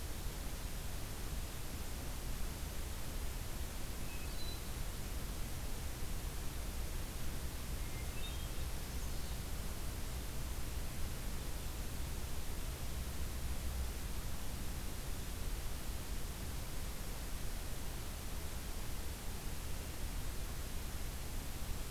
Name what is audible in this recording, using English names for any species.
Hermit Thrush, Magnolia Warbler